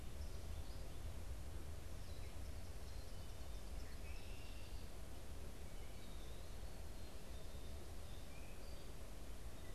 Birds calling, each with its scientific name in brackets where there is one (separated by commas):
Red-winged Blackbird (Agelaius phoeniceus)